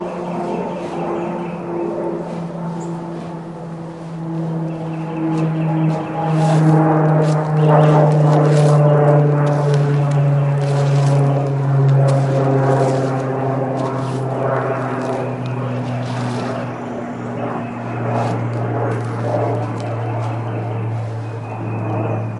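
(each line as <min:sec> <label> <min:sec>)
0:00.0 A plane flying overhead in the distance. 0:22.4
0:00.0 Birds chirping repeatedly outdoors in the background. 0:22.4
0:05.1 An animal or human rummages through foliage outdoors near the microphone. 0:21.2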